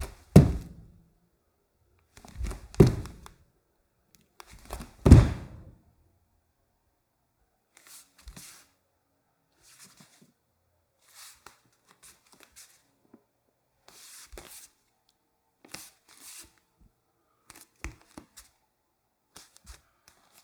Are there more than two thumps?
yes